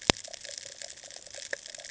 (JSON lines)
{"label": "ambient", "recorder": "HydroMoth"}